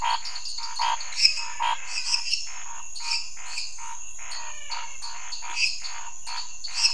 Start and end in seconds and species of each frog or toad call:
0.0	6.9	Dendropsophus minutus
0.0	6.9	Dendropsophus nanus
0.0	6.9	Scinax fuscovarius
1.0	2.5	Physalaemus albonotatus
4.1	5.3	Physalaemus albonotatus

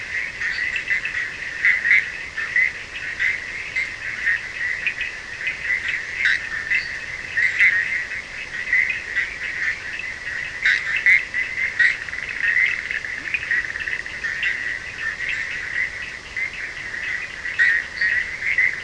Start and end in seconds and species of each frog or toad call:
0.0	18.8	Boana bischoffi
0.0	18.8	Sphaenorhynchus surdus
10.6	12.0	Boana leptolineata
13.1	13.4	Leptodactylus latrans
17.5	18.8	Boana leptolineata

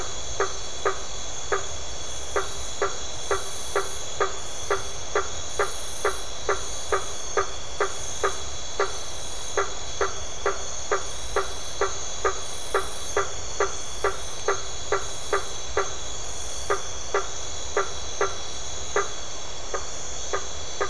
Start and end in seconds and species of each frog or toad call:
0.2	20.8	Boana faber

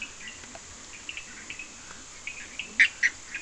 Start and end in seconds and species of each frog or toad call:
0.0	3.4	Leptodactylus latrans
0.0	3.4	Sphaenorhynchus surdus
2.6	3.4	Boana bischoffi

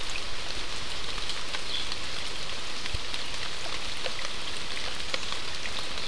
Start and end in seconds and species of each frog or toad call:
none

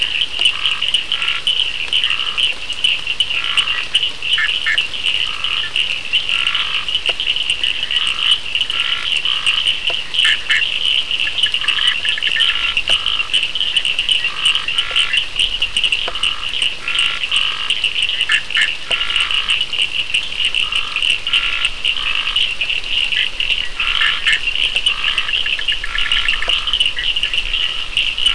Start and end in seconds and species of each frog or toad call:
0.0	9.7	Scinax perereca
0.0	28.3	Sphaenorhynchus surdus
4.2	5.0	Boana bischoffi
10.0	13.2	Boana bischoffi
11.5	22.6	Scinax perereca
18.0	18.8	Boana bischoffi
23.7	28.3	Scinax perereca
23.8	27.2	Boana bischoffi

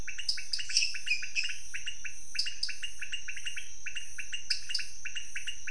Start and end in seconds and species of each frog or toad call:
0.0	5.7	Leptodactylus podicipinus
0.3	0.7	Dendropsophus nanus
0.3	1.0	Dendropsophus minutus
2.3	2.8	Dendropsophus nanus
4.5	5.0	Dendropsophus nanus

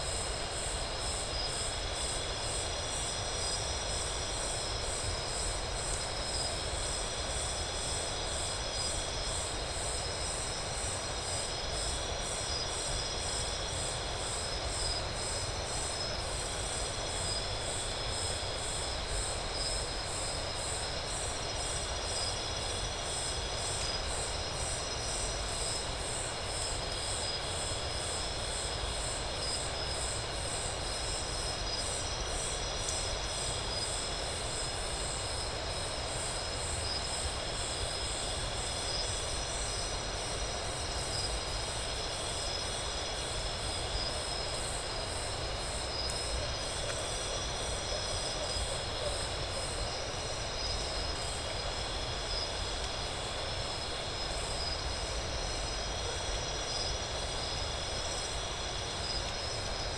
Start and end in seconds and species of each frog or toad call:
none

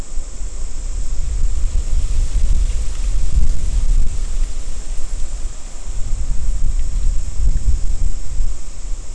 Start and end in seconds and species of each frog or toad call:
none

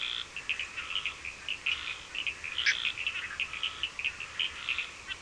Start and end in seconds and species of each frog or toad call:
0.0	5.2	Scinax perereca
0.0	5.2	Sphaenorhynchus surdus
2.5	3.0	Boana bischoffi

